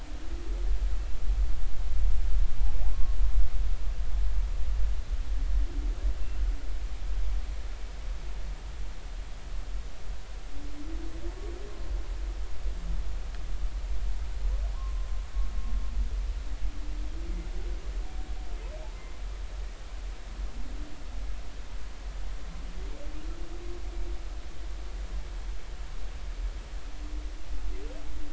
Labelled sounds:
14.7	15.1	humpback whale, 0.93 to 1.2 kHz

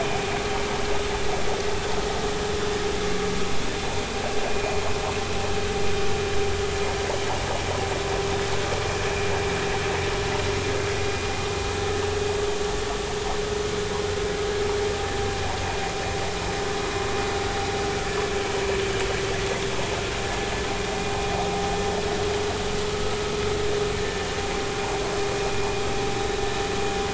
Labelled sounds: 4.5	4.8	vessel noise, 2.3 to 2.6 kHz

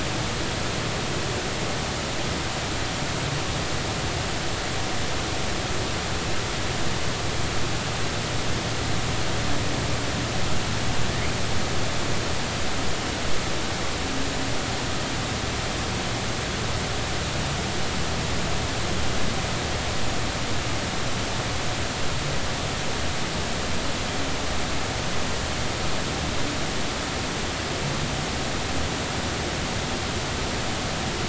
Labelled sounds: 11.1	11.3	humpback whale, 1.7 to 2.6 kHz

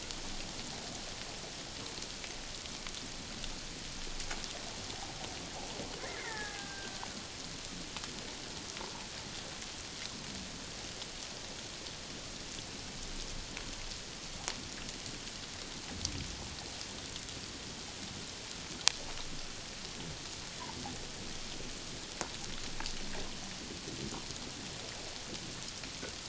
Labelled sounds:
6.0	7.0	killer whale, Bigg's (transient), 0.81 to 2.2 kHz

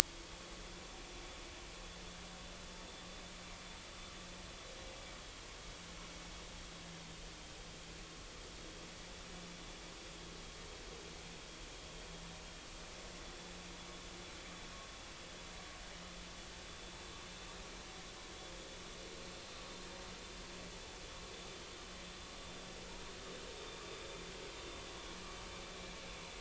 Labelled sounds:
0.6	0.8	vessel noise, 3.4 to 3.5 kHz
5.2	5.5	vessel noise, 3.2 to 3.4 kHz

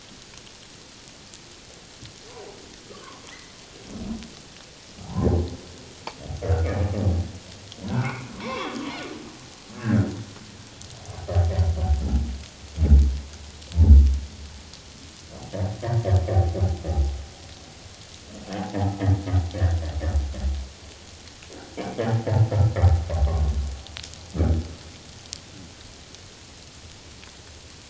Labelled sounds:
2.9	3.2	humpback whale, 0.91 to 1.3 kHz
5.0	5.3	humpback whale, 0.78 to 1.1 kHz
7.9	8.8	humpback whale, 0.91 to 3.5 kHz
9.7	10.1	humpback whale, 1.3 to 1.9 kHz

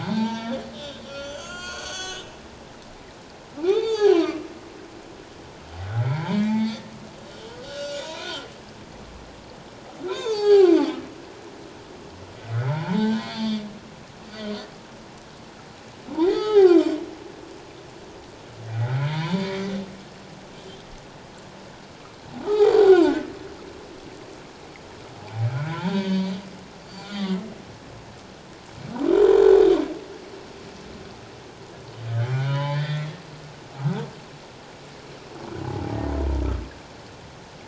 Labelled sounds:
0.0	2.6	humpback whale, 0.84 to 6.8 kHz
3.6	4.2	humpback whale, 0.78 to 5.0 kHz
5.8	8.3	humpback whale, 0.78 to 6.9 kHz
10.1	10.9	humpback whale, 0.78 to 8.0 kHz
12.4	13.6	humpback whale, 0.81 to 4.9 kHz
16.2	16.9	humpback whale, 0.78 to 5.6 kHz
18.7	19.7	humpback whale, 0.84 to 2.3 kHz
22.5	23.1	humpback whale, 0.78 to 4.8 kHz
25.5	26.3	humpback whale, 0.91 to 4.7 kHz
26.8	27.3	humpback whale, 3.4 to 7.2 kHz
32.3	33.1	humpback whale, 0.81 to 3.7 kHz

